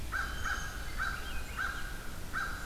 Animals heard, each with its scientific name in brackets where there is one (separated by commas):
Swainson's Thrush (Catharus ustulatus), American Crow (Corvus brachyrhynchos)